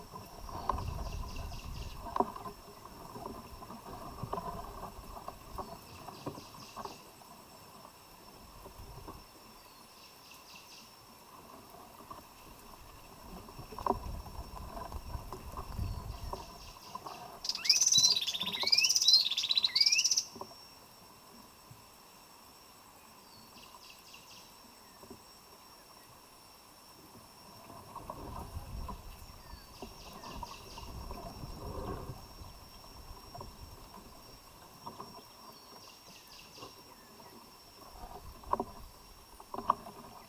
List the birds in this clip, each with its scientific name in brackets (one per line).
Cinnamon Bracken-Warbler (Bradypterus cinnamomeus)
Hunter's Cisticola (Cisticola hunteri)